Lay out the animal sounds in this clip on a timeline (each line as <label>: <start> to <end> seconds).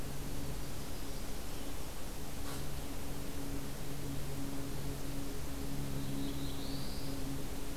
Black-throated Blue Warbler (Setophaga caerulescens): 5.8 to 7.2 seconds